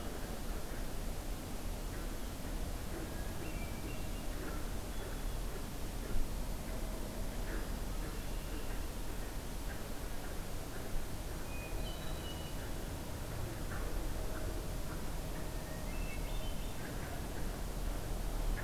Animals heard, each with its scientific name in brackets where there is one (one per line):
Red-winged Blackbird (Agelaius phoeniceus)
Hermit Thrush (Catharus guttatus)